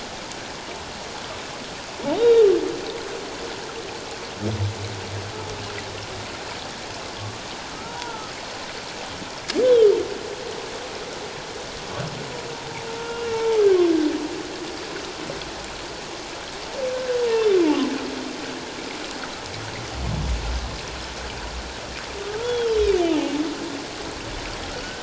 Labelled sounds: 2.2	2.4	humpback whale, 3.5 to 3.9 kHz
7.8	8.3	humpback whale, 0.84 to 1.5 kHz
9.6	9.9	humpback whale, 3.0 to 3.6 kHz
12.9	13.6	humpback whale, 0.81 to 2.8 kHz
16.9	17.2	humpback whale, 1.4 to 1.8 kHz
22.2	22.8	humpback whale, 1.2 to 3.5 kHz

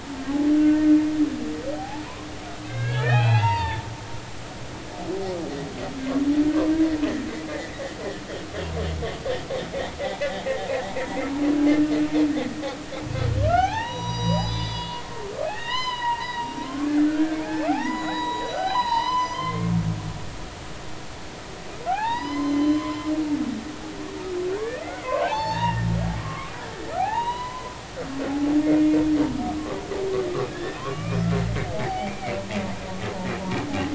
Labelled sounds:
0.6	1.0	humpback whale, 1.5 to 1.6 kHz
1.8	3.9	humpback whale, 0.80 to 4.7 kHz
7.5	7.7	humpback whale, 1.7 to 2.1 kHz
10.9	11.2	humpback whale, 0.90 to 1.0 kHz
13.4	19.8	humpback whale, 0.80 to 7.0 kHz
21.9	23.0	humpback whale, 0.80 to 6.2 kHz
24.6	26.5	humpback whale, 0.80 to 5.6 kHz
27.0	29.0	humpback whale, 0.80 to 4.0 kHz
30.5	31.2	humpback whale, 0.96 to 2.5 kHz
31.7	32.4	humpback whale, 0.80 to 4.7 kHz

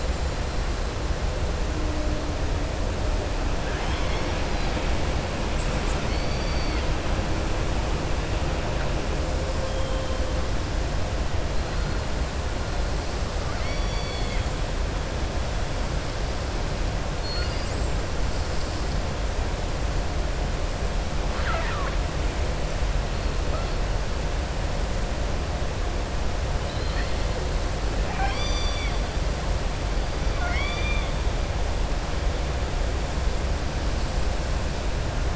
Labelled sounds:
3.6	4.4	killer whale, southern resident, 0.82 to 6.3 kHz
6.0	6.8	killer whale, southern resident, 3.5 to 5.0 kHz
13.4	14.5	killer whale, southern resident, 1.2 to 5.7 kHz
17.1	17.7	killer whale, southern resident, 1.4 to 5.6 kHz
21.2	22.0	killer whale, southern resident, 0.69 to 4.1 kHz
26.5	27.2	killer whale, southern resident, 1.3 to 4.9 kHz
28.0	29.0	killer whale, southern resident, 0.77 to 7.9 kHz
30.3	31.1	killer whale, southern resident, 0.72 to 5.4 kHz

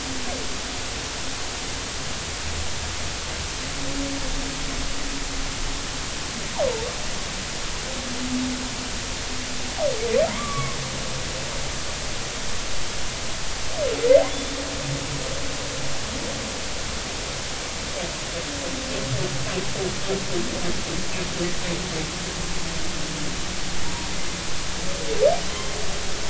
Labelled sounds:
10.3	10.8	humpback whale, 0.86 to 2.3 kHz
14.3	14.6	humpback whale, 3.4 to 3.6 kHz
25.5	25.7	humpback whale, 3.0 to 3.3 kHz

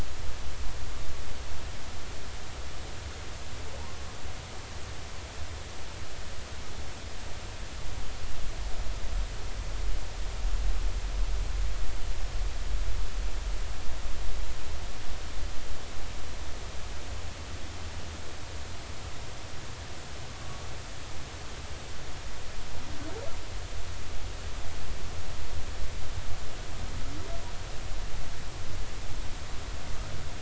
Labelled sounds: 3.8	4.1	humpback whale, 0.80 to 1.2 kHz

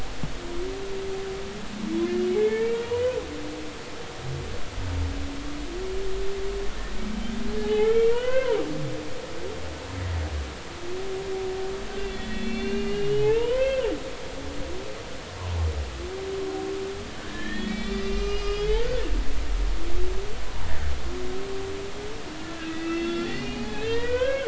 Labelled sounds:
2.4	3.2	humpback whale, 0.80 to 2.4 kHz
7.7	8.9	humpback whale, 0.80 to 3.3 kHz
12.0	13.9	humpback whale, 0.80 to 4.4 kHz
17.2	18.9	humpback whale, 1.2 to 6.1 kHz
22.4	24.4	humpback whale, 0.80 to 4.5 kHz

